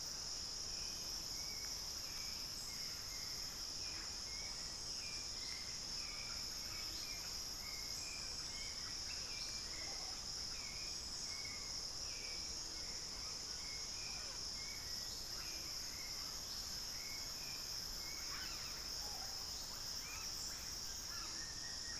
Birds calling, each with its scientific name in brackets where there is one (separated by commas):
unidentified bird, Buff-throated Woodcreeper (Xiphorhynchus guttatus), Russet-backed Oropendola (Psarocolius angustifrons), Undulated Tinamou (Crypturellus undulatus), Hauxwell's Thrush (Turdus hauxwelli)